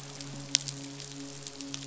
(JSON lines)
{"label": "biophony, midshipman", "recorder": "SoundTrap 500"}